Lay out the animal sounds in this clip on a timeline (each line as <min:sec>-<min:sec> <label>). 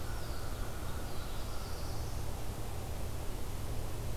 0:00.0-0:00.6 Eastern Wood-Pewee (Contopus virens)
0:00.0-0:02.0 American Crow (Corvus brachyrhynchos)
0:00.9-0:02.3 Black-throated Blue Warbler (Setophaga caerulescens)